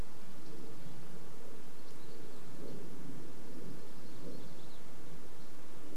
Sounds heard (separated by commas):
Dark-eyed Junco song, Red-breasted Nuthatch song, warbler song, airplane